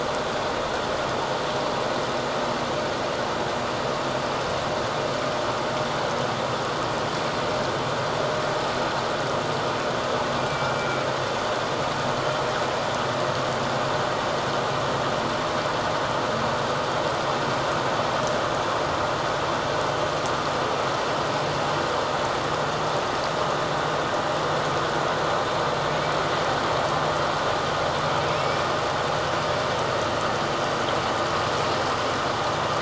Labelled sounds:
10.4	11.1	killer whale, 2.2 to 2.4 kHz
28.4	28.7	killer whale, 2.2 to 2.4 kHz

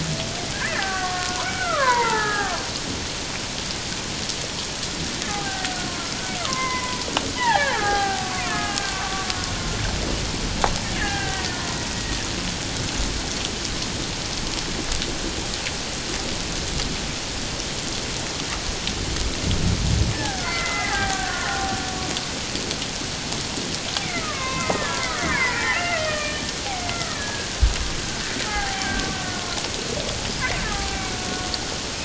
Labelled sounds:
0.6	2.6	killer whale, Bigg's (transient), 0.78 to 2.2 kHz
5.3	7.0	killer whale, Bigg's (transient), 0.78 to 2.2 kHz
7.4	9.3	killer whale, Bigg's (transient), 0.78 to 2.4 kHz
11.0	11.7	killer whale, Bigg's (transient), 0.78 to 2.0 kHz
20.1	21.8	killer whale, Bigg's (transient), 0.78 to 2.2 kHz
24.0	26.4	killer whale, Bigg's (transient), 0.91 to 3.2 kHz
26.9	27.5	killer whale, Bigg's (transient), 1.2 to 2.1 kHz
28.5	29.1	killer whale, Bigg's (transient), 0.78 to 1.7 kHz
30.6	31.5	killer whale, Bigg's (transient), 0.78 to 2.4 kHz

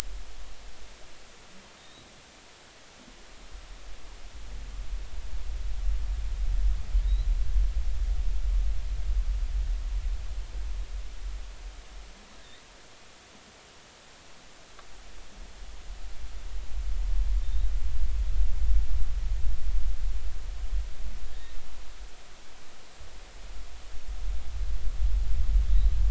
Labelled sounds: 1.8	2.1	humpback whale, 3.6 to 4.0 kHz
7.0	7.3	humpback whale, 3.6 to 4.1 kHz
17.4	17.7	humpback whale, 3.6 to 4.0 kHz
21.2	21.5	humpback whale, 1.6 to 1.9 kHz

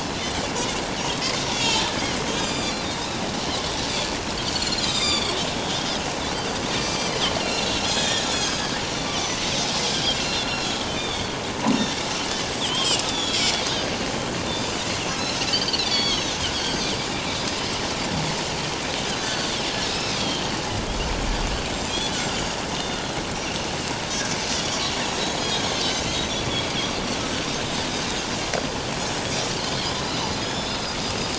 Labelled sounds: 1.5	1.8	Pacific white-sided dolphin, 3.0 to 7.5 kHz
2.4	2.9	Pacific white-sided dolphin, 2.2 to 7.4 kHz
4.4	5.4	Pacific white-sided dolphin, 2.2 to 7.5 kHz
6.7	8.7	Pacific white-sided dolphin, 1.5 to 6.9 kHz
9.0	9.3	Pacific white-sided dolphin, 2.1 to 6.2 kHz
10.1	11.3	Pacific white-sided dolphin, 2.6 to 4.8 kHz
12.6	13.9	Pacific white-sided dolphin, 2.8 to 6.0 kHz
15.1	16.4	Pacific white-sided dolphin, 2.1 to 7.1 kHz
17.2	17.5	Pacific white-sided dolphin, 3.6 to 4.0 kHz
19.2	20.4	Pacific white-sided dolphin, 1.4 to 6.2 kHz
21.7	23.0	Pacific white-sided dolphin, 3.2 to 7.8 kHz
24.6	24.9	Pacific white-sided dolphin, 3.1 to 6.9 kHz
25.4	26.0	Pacific white-sided dolphin, 3.1 to 6.7 kHz
30.4	30.9	Pacific white-sided dolphin, 3.3 to 7.1 kHz

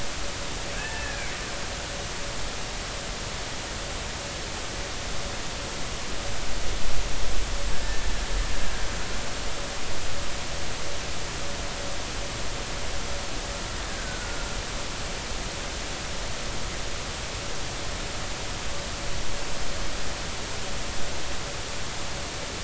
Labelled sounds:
0.7	1.3	killer whale, Bigg's (transient), 1.5 to 2.7 kHz
7.8	8.0	killer whale, Bigg's (transient), 1.7 to 1.8 kHz
13.8	14.4	killer whale, Bigg's (transient), 1.4 to 1.9 kHz

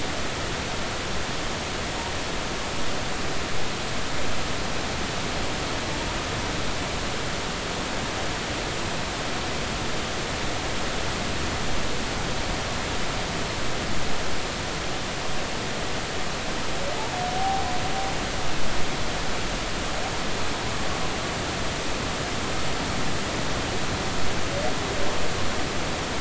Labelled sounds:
17.4	17.7	humpback whale, 0.80 to 0.83 kHz

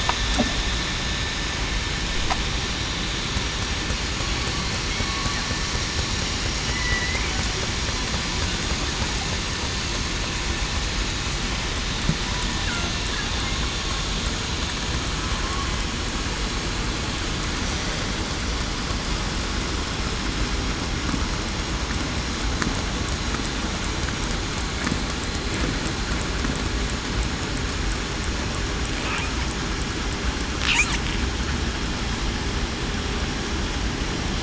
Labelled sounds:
6.7	7.2	killer whale, southern resident, 1.9 to 2.2 kHz

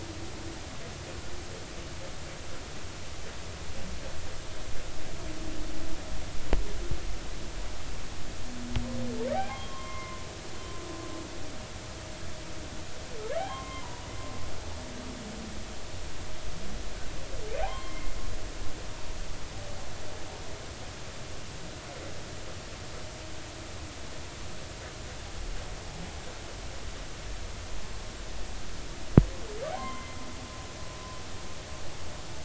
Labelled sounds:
9.3	10.2	humpback whale, 0.80 to 3.3 kHz
13.4	14.1	humpback whale, 0.80 to 3.3 kHz
17.6	18.1	humpback whale, 0.80 to 3.3 kHz
29.8	30.2	humpback whale, 0.99 to 2.2 kHz

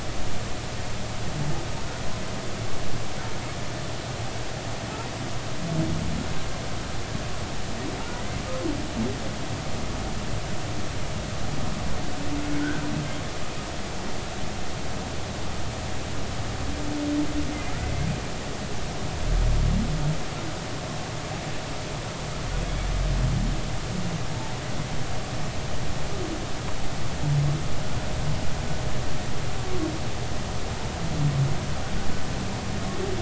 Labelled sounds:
8.1	8.4	humpback whale, 1.9 to 2.1 kHz
17.7	18.1	humpback whale, 1.8 to 2.2 kHz

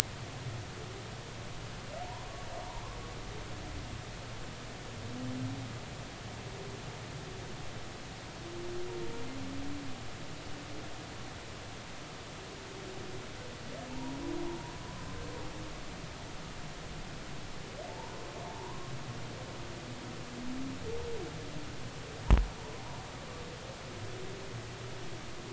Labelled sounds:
13.9	14.2	humpback whale, 0.83 to 1.0 kHz
18.5	18.8	humpback whale, 0.83 to 1.1 kHz

